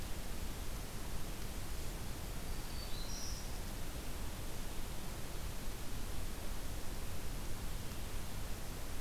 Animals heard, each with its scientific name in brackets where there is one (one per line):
Black-throated Green Warbler (Setophaga virens)